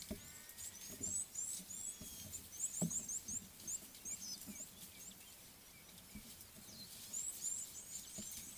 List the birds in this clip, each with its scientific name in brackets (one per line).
Red-cheeked Cordonbleu (Uraeginthus bengalus)